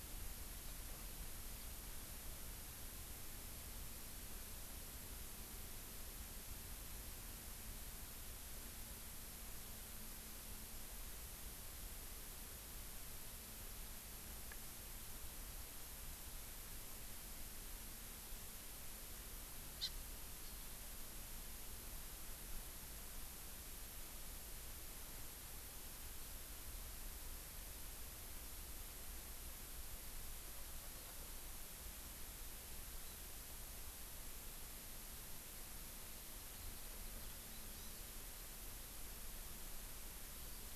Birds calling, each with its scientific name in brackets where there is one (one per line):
Hawaii Amakihi (Chlorodrepanis virens)